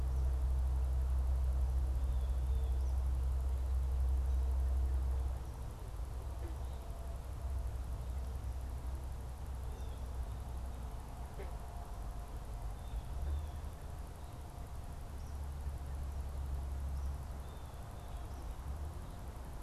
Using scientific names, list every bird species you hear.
Cyanocitta cristata, Tyrannus tyrannus